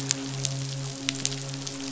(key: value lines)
label: biophony, midshipman
recorder: SoundTrap 500